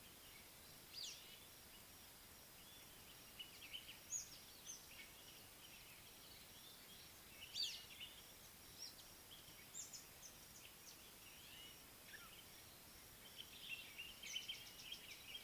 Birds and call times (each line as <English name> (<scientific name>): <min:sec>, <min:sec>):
Speckled Mousebird (Colius striatus): 0:07.6